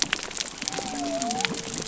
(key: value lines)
label: biophony
recorder: SoundTrap 300